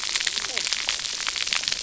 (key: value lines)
label: biophony, cascading saw
recorder: SoundTrap 300